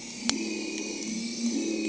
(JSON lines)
{"label": "anthrophony, boat engine", "recorder": "HydroMoth"}